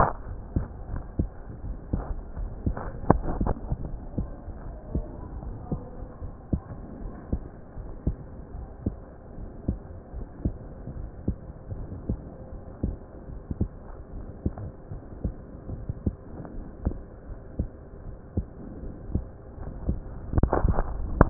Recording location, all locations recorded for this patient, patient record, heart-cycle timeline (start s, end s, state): aortic valve (AV)
aortic valve (AV)+pulmonary valve (PV)+tricuspid valve (TV)+mitral valve (MV)
#Age: Child
#Sex: Male
#Height: 141.0 cm
#Weight: 30.7 kg
#Pregnancy status: False
#Murmur: Absent
#Murmur locations: nan
#Most audible location: nan
#Systolic murmur timing: nan
#Systolic murmur shape: nan
#Systolic murmur grading: nan
#Systolic murmur pitch: nan
#Systolic murmur quality: nan
#Diastolic murmur timing: nan
#Diastolic murmur shape: nan
#Diastolic murmur grading: nan
#Diastolic murmur pitch: nan
#Diastolic murmur quality: nan
#Outcome: Normal
#Campaign: 2015 screening campaign
0.00	4.65	unannotated
4.65	4.78	S1
4.78	4.92	systole
4.92	5.06	S2
5.06	5.43	diastole
5.43	5.56	S1
5.56	5.70	systole
5.70	5.84	S2
5.84	6.22	diastole
6.22	6.32	S1
6.32	6.48	systole
6.48	6.62	S2
6.62	7.02	diastole
7.02	7.12	S1
7.12	7.28	systole
7.28	7.42	S2
7.42	7.78	diastole
7.78	7.90	S1
7.90	8.06	systole
8.06	8.18	S2
8.18	8.54	diastole
8.54	8.68	S1
8.68	8.84	systole
8.84	8.98	S2
8.98	9.36	diastole
9.36	9.48	S1
9.48	9.64	systole
9.64	9.78	S2
9.78	10.16	diastole
10.16	10.26	S1
10.26	10.42	systole
10.42	10.56	S2
10.56	10.94	diastole
10.94	11.08	S1
11.08	11.24	systole
11.24	11.36	S2
11.36	11.68	diastole
11.68	11.88	S1
11.88	12.08	systole
12.08	12.20	S2
12.20	12.53	diastole
12.53	12.72	S1
12.72	12.84	systole
12.84	12.98	S2
12.98	13.28	diastole
13.28	13.42	S1
13.42	13.58	systole
13.58	13.72	S2
13.72	14.14	diastole
14.14	14.26	S1
14.26	14.42	systole
14.42	14.54	S2
14.54	14.92	diastole
14.92	15.02	S1
15.02	15.22	systole
15.22	15.34	S2
15.34	15.70	diastole
15.70	15.82	S1
15.82	16.00	systole
16.00	16.14	S2
16.14	16.54	diastole
16.54	16.64	S1
16.64	16.84	systole
16.84	16.98	S2
16.98	17.28	diastole
17.28	17.38	S1
17.38	17.56	systole
17.56	17.70	S2
17.70	18.04	diastole
18.04	18.18	S1
18.18	18.36	systole
18.36	18.46	S2
18.46	18.79	diastole
18.79	18.94	S1
18.94	19.12	systole
19.12	19.26	S2
19.26	19.59	diastole
19.59	19.74	S1
19.74	19.86	systole
19.86	20.00	S2
20.00	21.30	unannotated